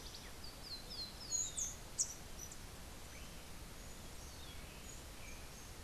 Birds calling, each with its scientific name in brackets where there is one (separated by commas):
Rufous-collared Sparrow (Zonotrichia capensis), Rufous-tailed Hummingbird (Amazilia tzacatl)